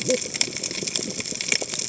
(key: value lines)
label: biophony, cascading saw
recorder: HydroMoth